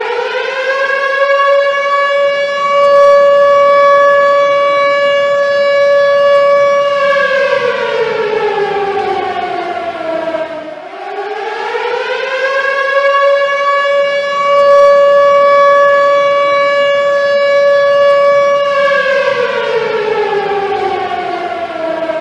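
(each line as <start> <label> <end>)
0.0 An old air-raid siren wails loudly in a steady, rising and falling pattern with a piercing, mechanical tone that echoes in the distance. 10.9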